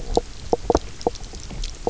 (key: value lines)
label: biophony, knock croak
recorder: SoundTrap 300